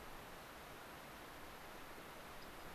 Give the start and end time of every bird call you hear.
[2.30, 2.70] Rock Wren (Salpinctes obsoletus)

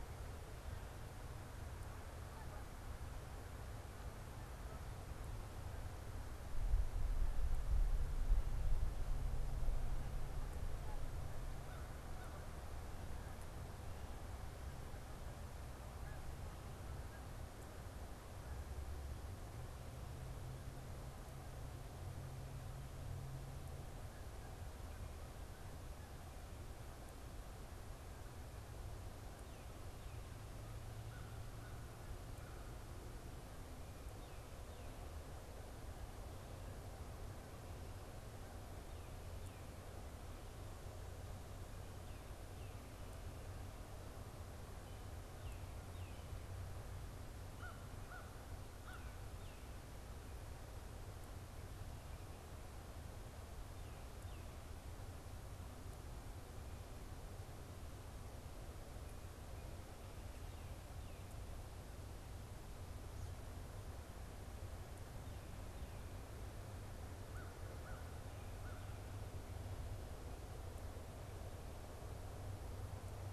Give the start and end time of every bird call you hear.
[0.00, 5.21] Canada Goose (Branta canadensis)
[11.51, 12.61] American Crow (Corvus brachyrhynchos)
[31.01, 32.71] American Crow (Corvus brachyrhynchos)
[47.41, 49.41] American Crow (Corvus brachyrhynchos)
[67.11, 68.11] American Crow (Corvus brachyrhynchos)
[68.41, 69.31] American Crow (Corvus brachyrhynchos)

